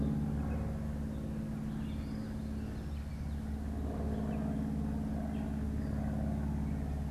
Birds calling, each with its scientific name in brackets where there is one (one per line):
Gray Catbird (Dumetella carolinensis)
Red-eyed Vireo (Vireo olivaceus)